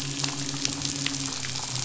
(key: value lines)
label: biophony, midshipman
recorder: SoundTrap 500